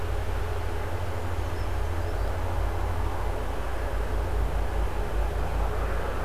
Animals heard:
forest ambience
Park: Marsh-Billings-Rockefeller National Historical Park